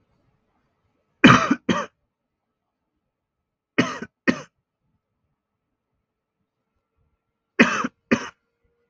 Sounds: Cough